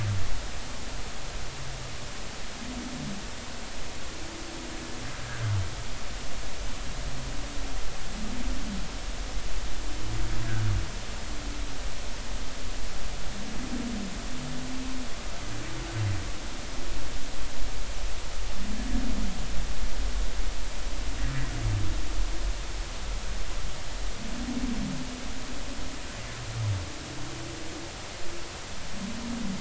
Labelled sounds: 5.2	5.5	humpback whale, 1.4 to 1.8 kHz

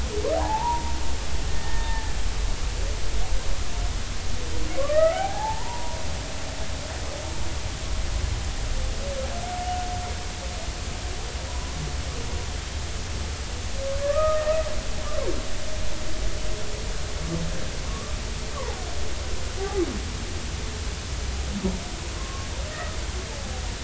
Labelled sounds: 0.3	1.9	humpback whale, 0.80 to 1.9 kHz
4.8	6.0	humpback whale, 0.80 to 2.0 kHz
11.5	11.8	humpback whale, 0.93 to 1.1 kHz
14.0	14.7	humpback whale, 1.0 to 2.0 kHz
17.8	18.1	humpback whale, 1.1 to 1.2 kHz
18.6	19.8	humpback whale, 0.80 to 1.2 kHz
22.2	22.5	humpback whale, 1.0 to 1.2 kHz

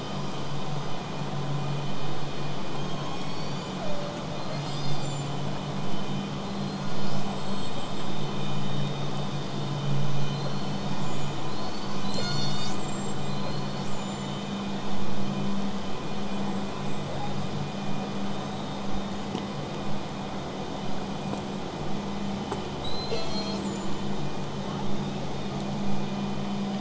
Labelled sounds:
2.8	4.3	killer whale, southern resident, J pod, call S03, 0.43 to 8.0 kHz
4.3	5.4	killer whale, southern resident, 2.8 to 8.0 kHz
6.4	8.1	killer whale, southern resident, call S42, 4.0 to 8.0 kHz
10.2	12.0	killer whale, southern resident, 3.9 to 8.0 kHz
12.0	13.4	killer whale, southern resident, call S42, 1.2 to 8.0 kHz
13.3	14.6	killer whale, southern resident, 4.0 to 8.0 kHz
16.3	17.5	killer whale, southern resident, 7.2 to 8.0 kHz
17.6	22.6	vessel noise, 0 to 8.0 kHz
22.8	24.2	killer whale, southern resident, call S42, 0.27 to 8.0 kHz
24.6	25.6	killer whale, southern resident, J pod, call S44, 2.7 to 8.0 kHz

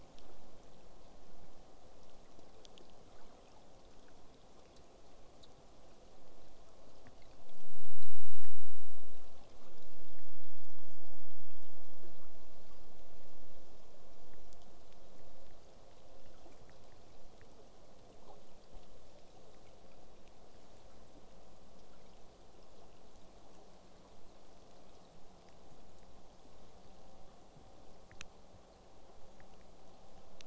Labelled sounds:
20.1	25.1	vessel noise, 0 to 8.0 kHz

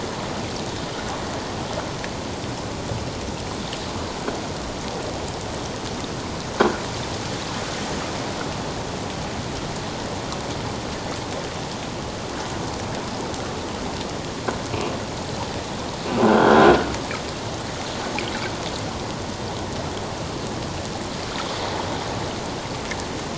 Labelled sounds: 16.2	16.8	croaking sound likely from a nearby submerged object, 1.4 to 3.4 kHz

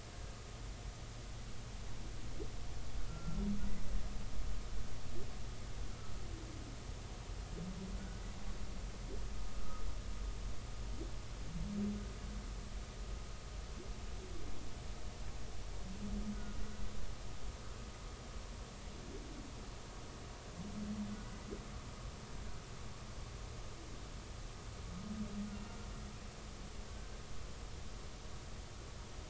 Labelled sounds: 3.1	3.4	humpback whale, 1.3 to 1.4 kHz
16.3	16.6	humpback whale, 1.4 to 1.5 kHz
21.1	21.4	humpback whale, 1.4 to 1.6 kHz
26.9	27.1	humpback whale, 1.5 to 1.6 kHz

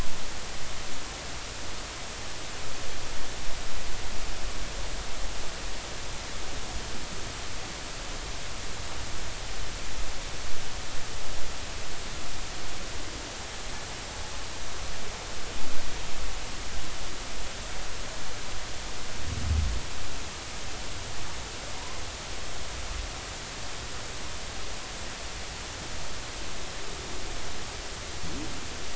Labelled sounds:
21.8	22.0	humpback whale, 0.90 to 1.1 kHz

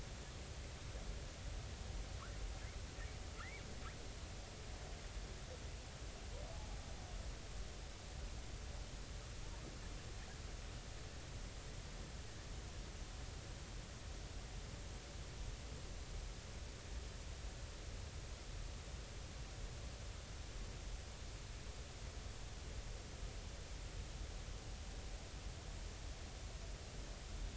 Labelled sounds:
3.4	3.7	humpback whale, 1.6 to 2.4 kHz

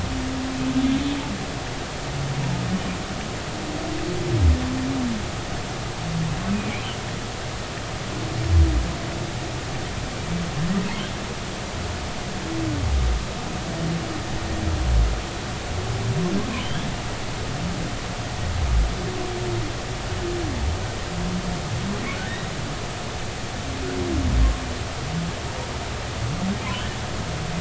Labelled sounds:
16.6	16.9	humpback whale, 2.8 to 3.5 kHz

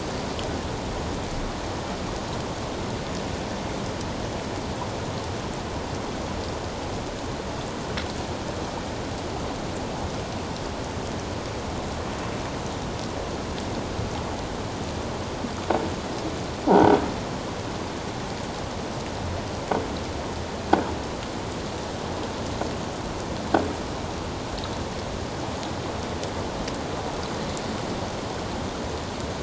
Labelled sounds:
16.7	17.0	croaking sound likely from a nearby submerged object, 1.4 to 1.6 kHz

